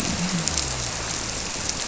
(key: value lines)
label: biophony
recorder: SoundTrap 300